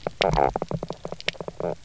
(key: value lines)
label: biophony
recorder: SoundTrap 300